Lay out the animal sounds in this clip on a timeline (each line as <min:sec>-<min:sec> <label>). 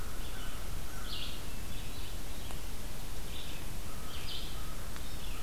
0:00.0-0:01.3 American Crow (Corvus brachyrhynchos)
0:00.0-0:03.8 Red-eyed Vireo (Vireo olivaceus)
0:03.8-0:05.4 American Crow (Corvus brachyrhynchos)
0:04.0-0:05.4 Ovenbird (Seiurus aurocapilla)